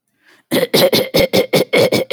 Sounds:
Throat clearing